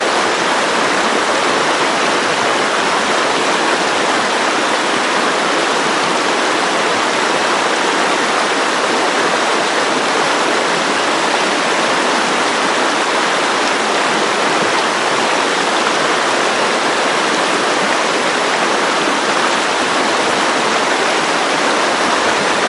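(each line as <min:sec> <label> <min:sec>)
0:00.0 A strong and fast stream of water gurgles noisily in the distance. 0:22.7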